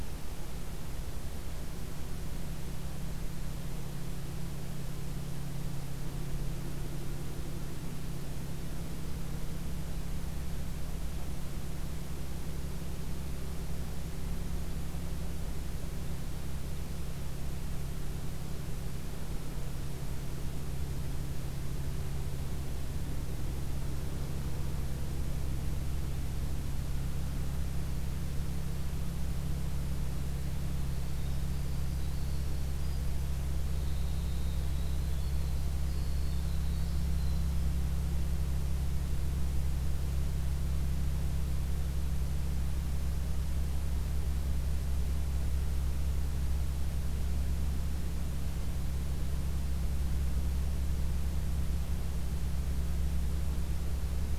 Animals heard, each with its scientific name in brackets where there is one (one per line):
Winter Wren (Troglodytes hiemalis)